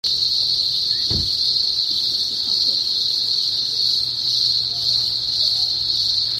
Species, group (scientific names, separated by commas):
Cyclochila australasiae, Cicadidae